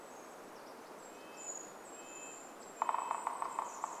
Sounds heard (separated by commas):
Brown Creeper call, Golden-crowned Kinglet song, woodpecker drumming, Red-breasted Nuthatch song